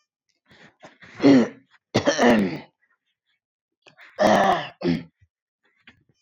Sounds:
Throat clearing